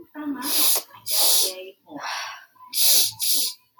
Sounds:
Sniff